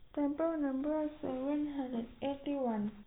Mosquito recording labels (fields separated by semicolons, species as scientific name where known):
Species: no mosquito; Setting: cup